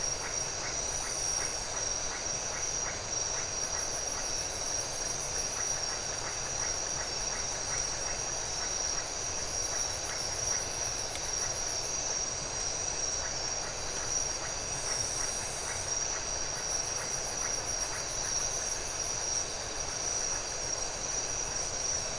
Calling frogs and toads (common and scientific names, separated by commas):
Iporanga white-lipped frog (Leptodactylus notoaktites)